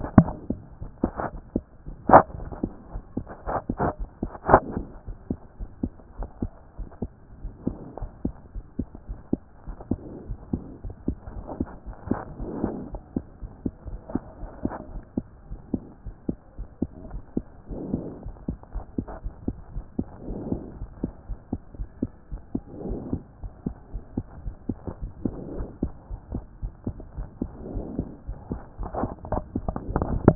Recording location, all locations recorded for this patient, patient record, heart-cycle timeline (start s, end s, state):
aortic valve (AV)
aortic valve (AV)+mitral valve (MV)
#Age: Child
#Sex: Female
#Height: 92.0 cm
#Weight: 15.2 kg
#Pregnancy status: False
#Murmur: Absent
#Murmur locations: nan
#Most audible location: nan
#Systolic murmur timing: nan
#Systolic murmur shape: nan
#Systolic murmur grading: nan
#Systolic murmur pitch: nan
#Systolic murmur quality: nan
#Diastolic murmur timing: nan
#Diastolic murmur shape: nan
#Diastolic murmur grading: nan
#Diastolic murmur pitch: nan
#Diastolic murmur quality: nan
#Outcome: Abnormal
#Campaign: 2014 screening campaign
0.00	4.97	unannotated
4.97	5.08	diastole
5.08	5.16	S1
5.16	5.28	systole
5.28	5.38	S2
5.38	5.60	diastole
5.60	5.70	S1
5.70	5.82	systole
5.82	5.92	S2
5.92	6.18	diastole
6.18	6.28	S1
6.28	6.42	systole
6.42	6.52	S2
6.52	6.78	diastole
6.78	6.88	S1
6.88	7.02	systole
7.02	7.10	S2
7.10	7.42	diastole
7.42	7.52	S1
7.52	7.66	systole
7.66	7.76	S2
7.76	8.00	diastole
8.00	8.10	S1
8.10	8.24	systole
8.24	8.34	S2
8.34	8.54	diastole
8.54	8.64	S1
8.64	8.78	systole
8.78	8.88	S2
8.88	9.08	diastole
9.08	9.18	S1
9.18	9.32	systole
9.32	9.40	S2
9.40	9.66	diastole
9.66	9.76	S1
9.76	9.90	systole
9.90	10.00	S2
10.00	10.28	diastole
10.28	10.38	S1
10.38	10.52	systole
10.52	10.62	S2
10.62	10.84	diastole
10.84	10.94	S1
10.94	11.06	systole
11.06	11.16	S2
11.16	11.36	diastole
11.36	11.46	S1
11.46	11.58	systole
11.58	11.68	S2
11.68	11.86	diastole
11.86	11.94	S1
11.94	12.08	systole
12.08	12.18	S2
12.18	12.42	diastole
12.42	12.52	S1
12.52	12.62	systole
12.62	12.76	S2
12.76	12.92	diastole
12.92	13.00	S1
13.00	13.14	systole
13.14	13.24	S2
13.24	13.42	diastole
13.42	13.50	S1
13.50	13.64	systole
13.64	13.73	S2
13.73	13.88	diastole
13.88	14.00	S1
14.00	14.14	systole
14.14	14.22	S2
14.22	14.40	diastole
14.40	14.50	S1
14.50	14.64	systole
14.64	14.72	S2
14.72	14.92	diastole
14.92	15.02	S1
15.02	15.16	systole
15.16	15.26	S2
15.26	15.50	diastole
15.50	15.60	S1
15.60	15.72	systole
15.72	15.82	S2
15.82	16.06	diastole
16.06	16.14	S1
16.14	16.28	systole
16.28	16.38	S2
16.38	16.58	diastole
16.58	16.68	S1
16.68	16.80	systole
16.80	16.90	S2
16.90	17.10	diastole
17.10	17.22	S1
17.22	17.36	systole
17.36	17.44	S2
17.44	17.70	diastole
17.70	17.82	S1
17.82	17.92	systole
17.92	18.06	S2
18.06	18.24	diastole
18.24	18.34	S1
18.34	18.48	systole
18.48	18.58	S2
18.58	18.74	diastole
18.74	18.84	S1
18.84	18.98	systole
18.98	19.08	S2
19.08	19.26	diastole
19.26	19.34	S1
19.34	19.46	systole
19.46	19.56	S2
19.56	19.74	diastole
19.74	19.84	S1
19.84	19.98	systole
19.98	20.06	S2
20.06	20.28	diastole
20.28	20.40	S1
20.40	20.50	systole
20.50	20.62	S2
20.62	20.80	diastole
20.80	20.90	S1
20.90	21.02	systole
21.02	21.12	S2
21.12	21.28	diastole
21.28	21.38	S1
21.38	21.52	systole
21.52	21.60	S2
21.60	21.78	diastole
21.78	21.88	S1
21.88	22.02	systole
22.02	22.10	S2
22.10	22.34	diastole
22.34	22.42	S1
22.42	22.54	systole
22.54	22.62	S2
22.62	22.86	diastole
22.86	23.00	S1
23.00	23.12	systole
23.12	23.22	S2
23.22	23.42	diastole
23.42	23.52	S1
23.52	23.66	systole
23.66	23.76	S2
23.76	23.92	diastole
23.92	24.04	S1
24.04	24.16	systole
24.16	24.24	S2
24.24	24.44	diastole
24.44	24.56	S1
24.56	24.68	systole
24.68	24.78	S2
24.78	25.02	diastole
25.02	25.12	S1
25.12	25.24	systole
25.24	25.32	S2
25.32	25.56	diastole
25.56	25.68	S1
25.68	25.82	systole
25.82	25.92	S2
25.92	26.12	diastole
26.12	26.20	S1
26.20	26.32	systole
26.32	26.44	S2
26.44	26.62	diastole
26.62	30.35	unannotated